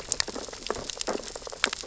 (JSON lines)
{"label": "biophony, sea urchins (Echinidae)", "recorder": "SoundTrap 600 or HydroMoth"}